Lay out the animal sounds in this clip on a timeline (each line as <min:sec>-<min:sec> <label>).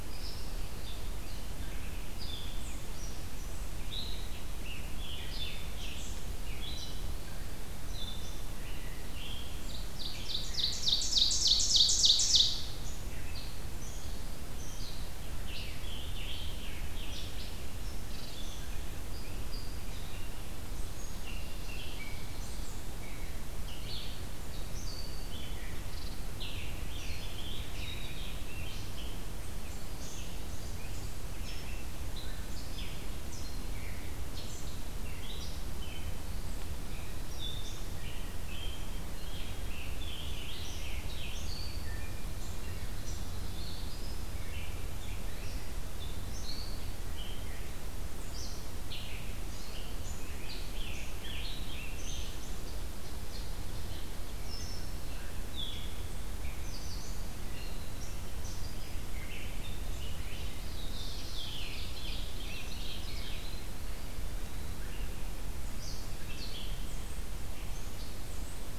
0:00.0-1:08.8 Red-eyed Vireo (Vireo olivaceus)
0:03.8-0:07.1 Scarlet Tanager (Piranga olivacea)
0:09.7-0:12.7 Ovenbird (Seiurus aurocapilla)
0:15.4-0:17.8 Scarlet Tanager (Piranga olivacea)
0:26.2-0:29.3 Scarlet Tanager (Piranga olivacea)
0:37.9-0:41.8 Scarlet Tanager (Piranga olivacea)
0:49.6-0:52.8 Scarlet Tanager (Piranga olivacea)
1:00.6-1:01.6 Black-throated Blue Warbler (Setophaga caerulescens)
1:01.0-1:03.5 Scarlet Tanager (Piranga olivacea)
1:01.6-1:03.4 Ovenbird (Seiurus aurocapilla)